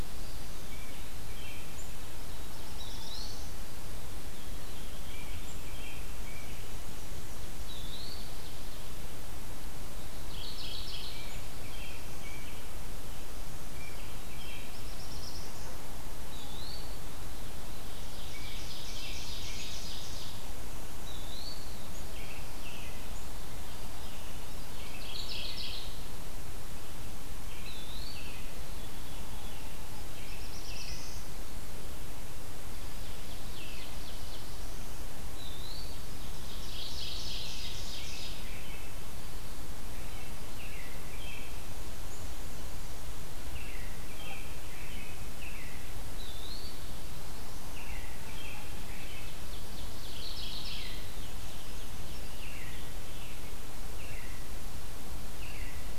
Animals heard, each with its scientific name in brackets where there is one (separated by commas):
Mourning Warbler (Geothlypis philadelphia), Veery (Catharus fuscescens), Brown Creeper (Certhia americana), Eastern Wood-Pewee (Contopus virens), Black-throated Blue Warbler (Setophaga caerulescens), Ovenbird (Seiurus aurocapilla), American Robin (Turdus migratorius)